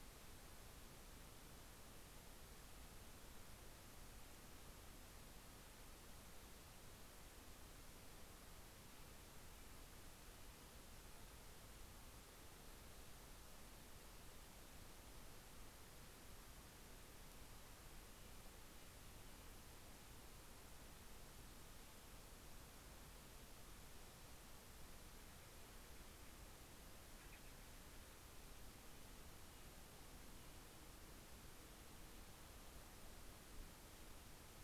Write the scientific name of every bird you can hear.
Cyanocitta stelleri